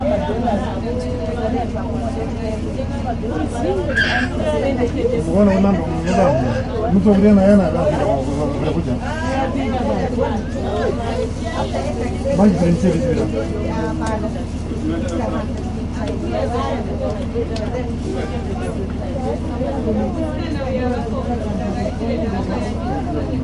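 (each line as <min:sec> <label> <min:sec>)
0:00.0 People are talking outdoors in Finnish. 0:23.4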